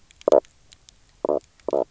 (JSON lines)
{"label": "biophony, knock croak", "recorder": "SoundTrap 300"}